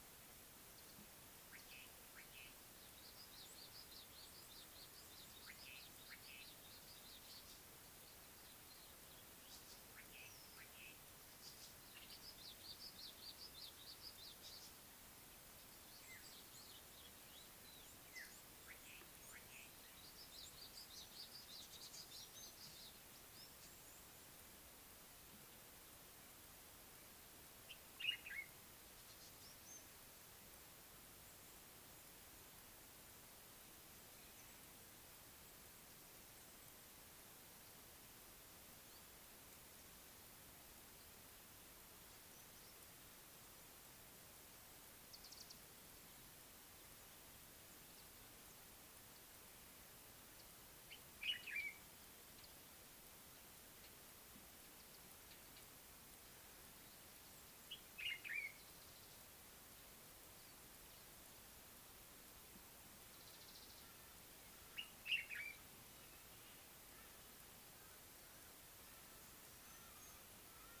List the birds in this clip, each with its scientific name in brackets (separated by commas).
Mariqua Sunbird (Cinnyris mariquensis), Common Bulbul (Pycnonotus barbatus), Red-faced Crombec (Sylvietta whytii), Slate-colored Boubou (Laniarius funebris)